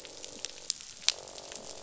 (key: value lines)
label: biophony, croak
recorder: SoundTrap 500